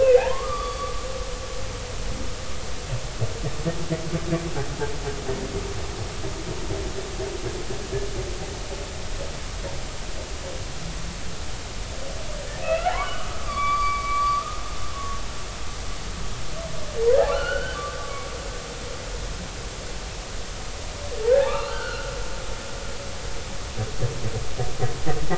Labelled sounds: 0.0	1.1	humpback whale, 0.80 to 4.7 kHz
12.6	14.6	humpback whale, 0.80 to 4.7 kHz
14.9	15.2	humpback whale, 1.0 to 1.1 kHz
17.3	18.3	humpback whale, 1.0 to 3.1 kHz
21.5	22.1	humpback whale, 1.1 to 2.9 kHz

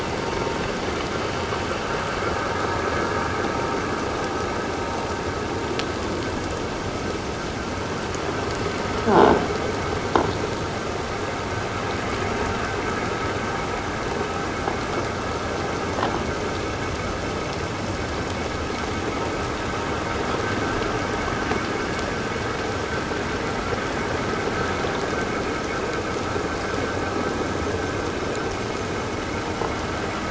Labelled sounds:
9.1	9.4	croaking sound likely from a nearby submerged object, 0.78 to 1.7 kHz

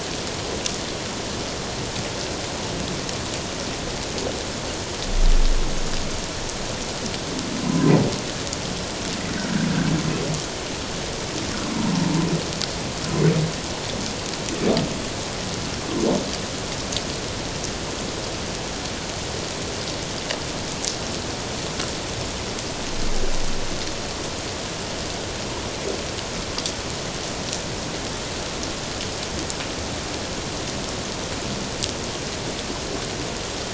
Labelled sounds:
7.6	7.9	humpback whale, 0.94 to 1.1 kHz
11.7	11.9	humpback whale, 0.88 to 1.1 kHz

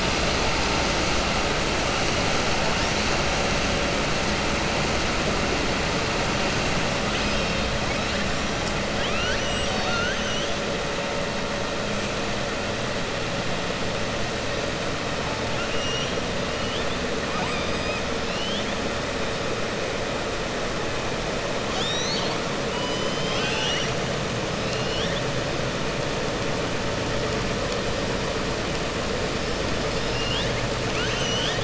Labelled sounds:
8.9	10.5	killer whale, southern resident, 0.77 to 7.8 kHz
15.5	16.1	killer whale, southern resident, 2.7 to 3.8 kHz
17.2	18.7	killer whale, southern resident, 0.74 to 5.2 kHz
22.7	23.9	killer whale, southern resident, 0.89 to 7.8 kHz
24.6	25.2	killer whale, southern resident, 2.7 to 5.7 kHz
29.8	30.6	killer whale, southern resident, 2.7 to 5.7 kHz
30.8	31.6	killer whale, southern resident, 1.4 to 7.8 kHz

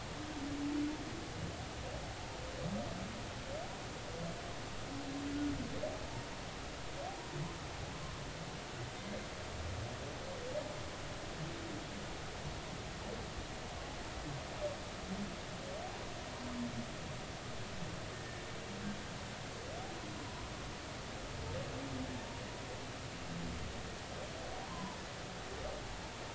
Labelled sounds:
24.7	25.0	humpback whale, 0.86 to 1.1 kHz

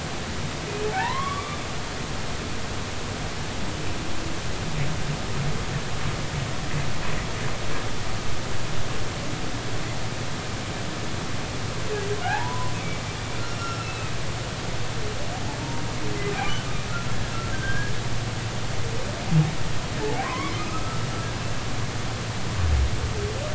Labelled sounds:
0.9	1.7	humpback whale, 0.80 to 3.6 kHz
12.2	12.7	humpback whale, 0.80 to 1.8 kHz
13.5	14.2	humpback whale, 1.3 to 5.6 kHz
17.5	17.9	humpback whale, 1.5 to 1.8 kHz
20.0	21.1	humpback whale, 0.80 to 2.3 kHz

